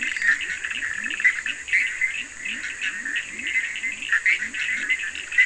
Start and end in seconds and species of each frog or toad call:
0.0	5.4	Boana bischoffi
0.0	5.4	Leptodactylus latrans
0.0	5.4	Sphaenorhynchus surdus
0.0	0.6	Dendropsophus minutus
1:30am

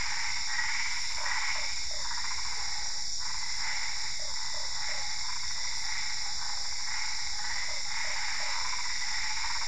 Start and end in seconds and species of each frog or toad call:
0.0	9.6	Boana albopunctata
1.1	2.1	Boana lundii
4.1	5.1	Boana lundii
5.5	6.8	Physalaemus cuvieri
7.7	8.6	Boana lundii
~9pm

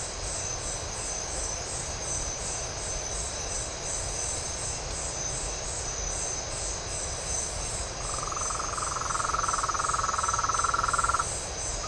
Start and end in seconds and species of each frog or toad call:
7.9	11.8	Rhinella ornata
3am

